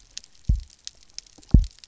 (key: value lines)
label: biophony, double pulse
recorder: SoundTrap 300